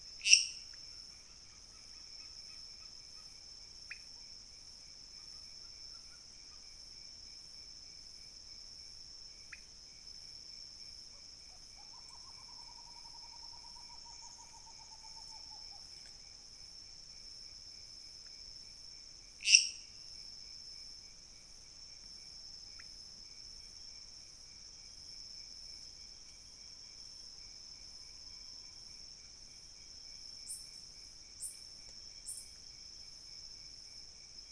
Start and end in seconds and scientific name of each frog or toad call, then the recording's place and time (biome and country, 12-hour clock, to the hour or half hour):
0.0	0.9	Dendropsophus minutus
3.7	4.1	Leptodactylus podicipinus
9.4	9.7	Leptodactylus podicipinus
19.2	20.1	Dendropsophus minutus
Cerrado, Brazil, 4am